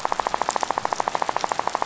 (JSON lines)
{"label": "biophony, rattle", "recorder": "SoundTrap 500"}